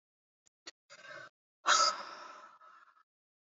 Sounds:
Sigh